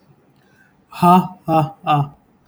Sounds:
Laughter